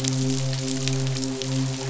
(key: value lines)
label: biophony, midshipman
recorder: SoundTrap 500